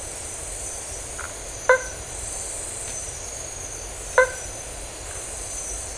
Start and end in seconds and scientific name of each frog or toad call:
1.3	2.2	Boana faber
4.0	4.7	Boana faber